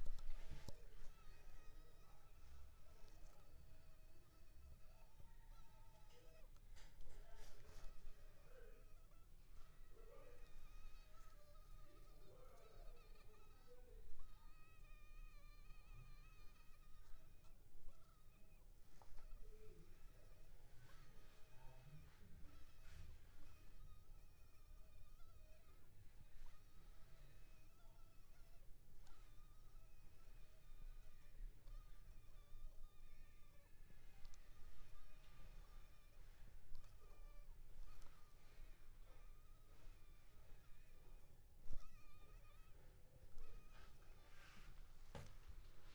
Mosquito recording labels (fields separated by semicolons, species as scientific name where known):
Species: Culex pipiens complex; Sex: female; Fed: unfed; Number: one; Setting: cup